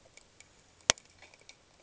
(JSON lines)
{"label": "ambient", "recorder": "HydroMoth"}